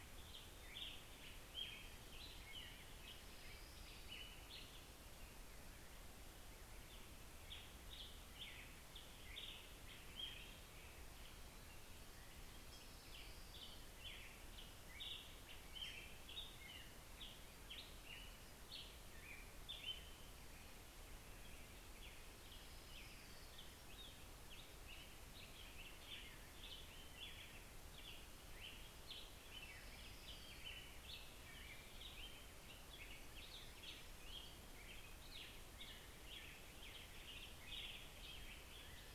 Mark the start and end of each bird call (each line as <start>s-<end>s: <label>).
0.0s-39.1s: American Robin (Turdus migratorius)
11.3s-13.4s: Black-headed Grosbeak (Pheucticus melanocephalus)